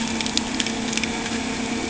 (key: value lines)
label: anthrophony, boat engine
recorder: HydroMoth